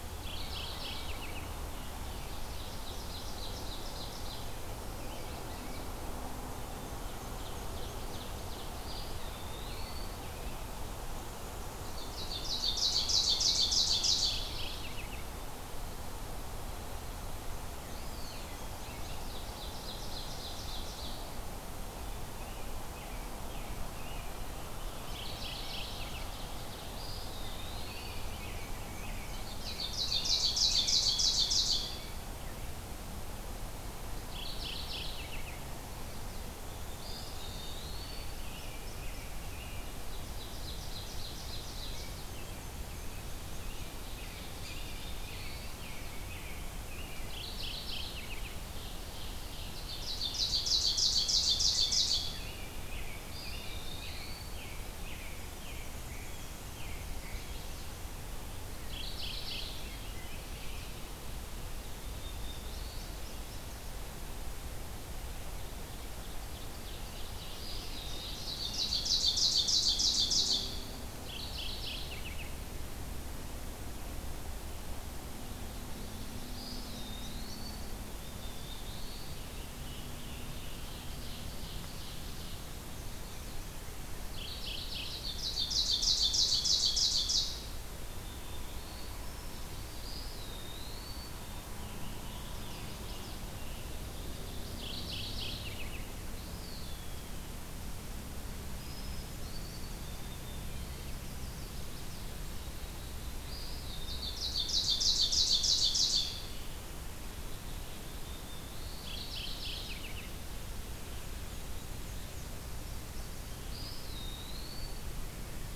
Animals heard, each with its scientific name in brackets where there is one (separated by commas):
Mourning Warbler (Geothlypis philadelphia), American Robin (Turdus migratorius), Eastern Wood-Pewee (Contopus virens), Black-and-white Warbler (Mniotilta varia), White-throated Sparrow (Zonotrichia albicollis), Ovenbird (Seiurus aurocapilla), Black-throated Blue Warbler (Setophaga caerulescens), Chestnut-sided Warbler (Setophaga pensylvanica)